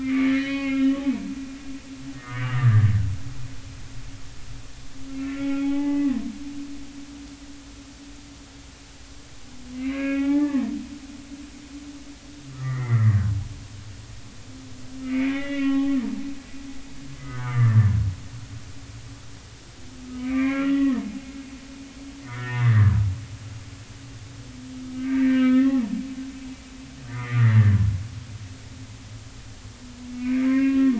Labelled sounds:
0.0	1.0	humpback whale, 1.1 to 4.4 kHz
2.1	2.9	humpback whale, 1.1 to 2.0 kHz
5.1	6.3	humpback whale, 0.80 to 2.9 kHz
9.7	10.7	humpback whale, 0.80 to 2.8 kHz
12.5	13.2	humpback whale, 1.1 to 2.2 kHz
15.0	16.0	humpback whale, 0.80 to 2.9 kHz
17.2	17.9	humpback whale, 1.1 to 2.1 kHz
20.0	21.1	humpback whale, 1.0 to 2.5 kHz
22.2	23.0	humpback whale, 0.93 to 1.9 kHz
24.8	25.8	humpback whale, 1.2 to 3.4 kHz
27.0	27.8	humpback whale, 1.1 to 2.3 kHz
30.1	30.9	humpback whale, 0.99 to 2.8 kHz

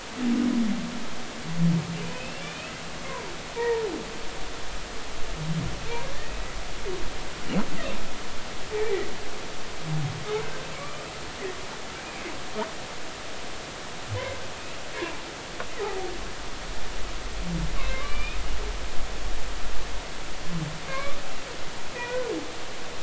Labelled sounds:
2.1	3.8	humpback whale, 0.86 to 2.8 kHz
8.8	9.0	humpback whale, 2.2 to 2.4 kHz
10.8	11.0	humpback whale, 2.2 to 2.5 kHz
17.8	18.4	humpback whale, 1.0 to 3.1 kHz
20.9	21.4	humpback whale, 0.99 to 2.8 kHz
21.9	22.3	humpback whale, 1.9 to 2.5 kHz

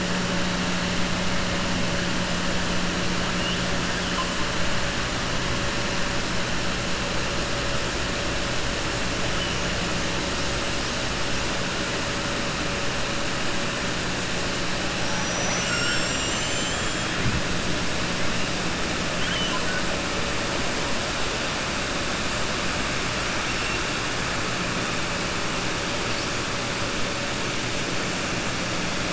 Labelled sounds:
15.4	16.8	killer whale, 0.72 to 3.5 kHz
19.1	19.8	killer whale, 0.51 to 3.3 kHz

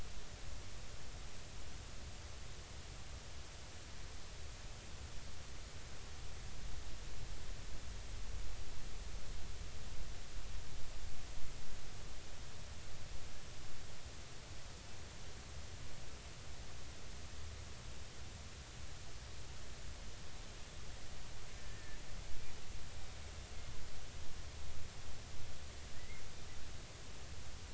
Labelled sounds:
21.6	22.0	killer whale, Bigg's (transient), 1.7 to 1.9 kHz
26.0	26.2	killer whale, Bigg's (transient), 1.9 to 2.2 kHz

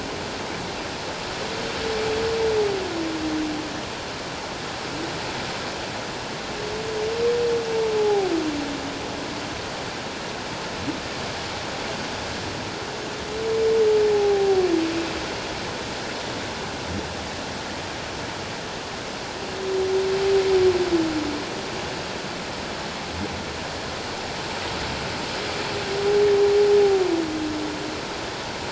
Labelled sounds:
8.0	8.3	humpback whale, 0.78 to 0.88 kHz
14.1	14.6	humpback whale, 0.78 to 0.88 kHz

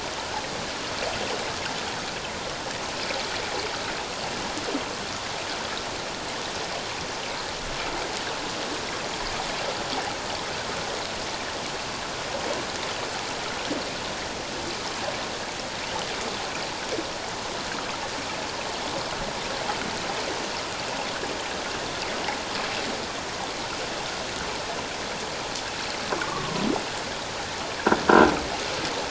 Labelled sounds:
26.2	26.6	humpback whale, 0.94 to 1.2 kHz

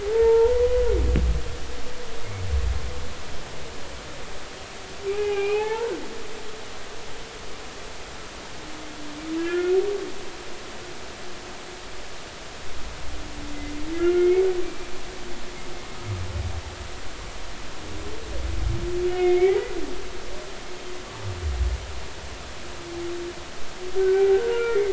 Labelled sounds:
0.0	0.8	humpback whale, 0.80 to 1.5 kHz
5.1	6.7	humpback whale, 0.80 to 3.0 kHz
9.4	9.8	humpback whale, 1.3 to 3.2 kHz
13.9	14.9	humpback whale, 1.3 to 2.4 kHz
19.1	19.7	humpback whale, 1.9 to 2.3 kHz
20.1	20.3	humpback whale, 2.8 to 3.0 kHz
24.0	24.8	humpback whale, 0.80 to 1.6 kHz

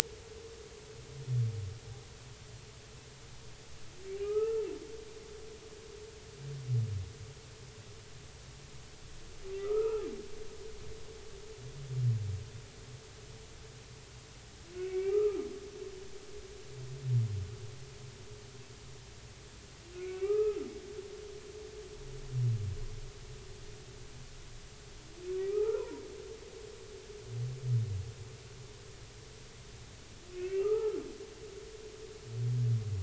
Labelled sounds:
4.2	4.7	humpback whale, 0.80 to 2.8 kHz
9.6	10.1	humpback whale, 1.1 to 2.7 kHz
14.8	15.4	humpback whale, 1.1 to 2.5 kHz
20.1	20.6	humpback whale, 0.80 to 2.8 kHz
25.4	26.0	humpback whale, 0.80 to 2.6 kHz
30.3	31.0	humpback whale, 1.2 to 2.8 kHz

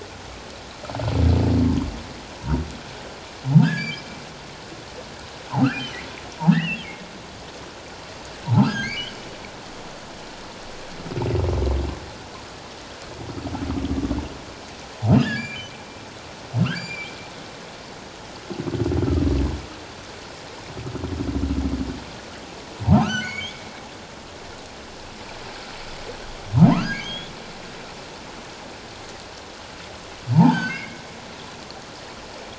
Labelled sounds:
3.6	4.0	humpback whale, 1.2 to 2.5 kHz
6.5	6.9	humpback whale, 1.6 to 3.0 kHz
8.7	9.2	humpback whale, 1.5 to 3.4 kHz
15.2	15.7	humpback whale, 1.6 to 4.8 kHz
16.8	17.1	humpback whale, 2.1 to 4.9 kHz
23.0	23.6	humpback whale, 1.2 to 4.6 kHz
26.7	27.3	humpback whale, 0.91 to 3.6 kHz
30.4	31.0	humpback whale, 1.3 to 2.9 kHz

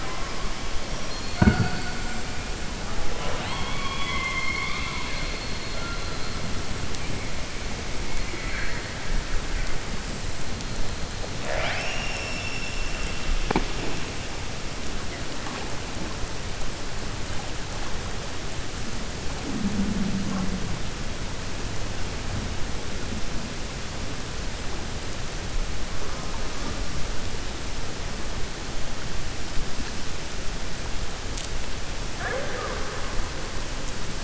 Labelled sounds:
1.0	1.9	killer whale, 4.2 to 4.6 kHz
3.1	5.8	killer whale, 0.54 to 4.5 kHz
11.3	13.2	killer whale, 0.56 to 6.5 kHz

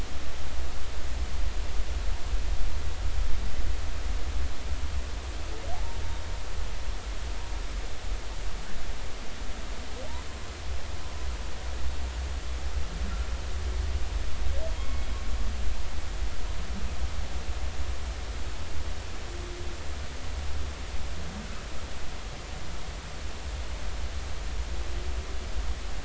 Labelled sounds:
14.8	15.1	humpback whale, 2.1 to 2.2 kHz

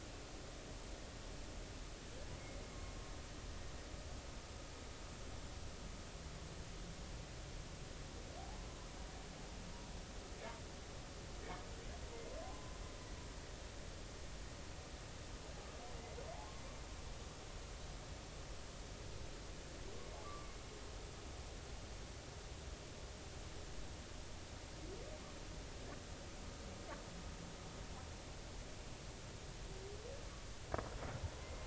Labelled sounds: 12.4	12.7	humpback whale, 0.99 to 1.1 kHz
20.2	20.6	humpback whale, 1.1 to 1.2 kHz
31.4	31.6	humpback whale, 2.0 to 2.1 kHz

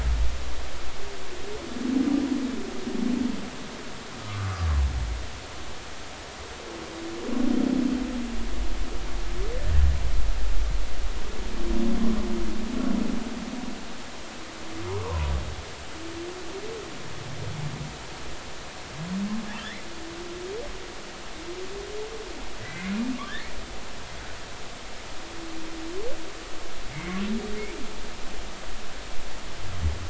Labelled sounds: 4.2	4.8	humpback whale, 1.0 to 1.3 kHz
15.0	15.3	humpback whale, 0.86 to 1.2 kHz
19.6	19.8	humpback whale, 1.5 to 2.3 kHz
22.6	22.9	humpback whale, 1.9 to 2.3 kHz
26.9	27.2	humpback whale, 2.0 to 2.3 kHz

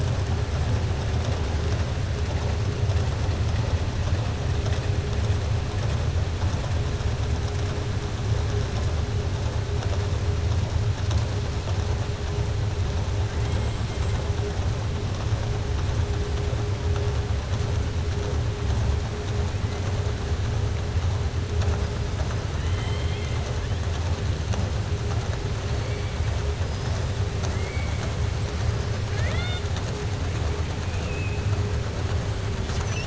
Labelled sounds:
22.5	23.4	killer whale, southern resident, 1.3 to 4.2 kHz
27.4	28.1	killer whale, southern resident, 1.3 to 3.1 kHz
29.0	29.9	killer whale, southern resident, 0.61 to 5.0 kHz

